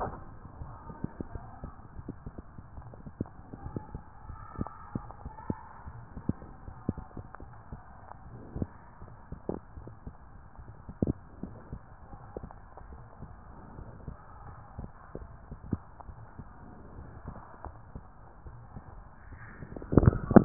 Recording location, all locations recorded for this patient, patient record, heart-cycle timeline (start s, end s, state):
tricuspid valve (TV)
pulmonary valve (PV)+tricuspid valve (TV)
#Age: Child
#Sex: Female
#Height: 123.0 cm
#Weight: 31.0 kg
#Pregnancy status: False
#Murmur: Unknown
#Murmur locations: nan
#Most audible location: nan
#Systolic murmur timing: nan
#Systolic murmur shape: nan
#Systolic murmur grading: nan
#Systolic murmur pitch: nan
#Systolic murmur quality: nan
#Diastolic murmur timing: nan
#Diastolic murmur shape: nan
#Diastolic murmur grading: nan
#Diastolic murmur pitch: nan
#Diastolic murmur quality: nan
#Outcome: Normal
#Campaign: 2015 screening campaign
0.00	13.74	unannotated
13.74	13.88	S1
13.88	14.04	systole
14.04	14.16	S2
14.16	14.42	diastole
14.42	14.54	S1
14.54	14.76	systole
14.76	14.91	S2
14.91	15.11	diastole
15.11	15.28	S1
15.28	15.46	systole
15.46	15.60	S2
15.60	16.02	diastole
16.02	16.16	S1
16.16	16.35	systole
16.35	16.48	S2
16.48	16.93	diastole
16.93	17.08	S1
17.08	17.24	systole
17.24	17.38	S2
17.38	17.62	diastole
17.62	17.74	S1
17.74	17.90	systole
17.90	18.05	S2
18.05	18.43	diastole
18.43	18.58	S1
18.58	18.71	systole
18.71	18.84	S2
18.84	20.45	unannotated